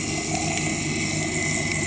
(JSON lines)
{"label": "anthrophony, boat engine", "recorder": "HydroMoth"}